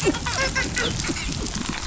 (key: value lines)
label: biophony, dolphin
recorder: SoundTrap 500